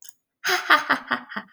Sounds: Laughter